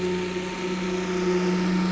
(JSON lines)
{"label": "anthrophony, boat engine", "recorder": "SoundTrap 500"}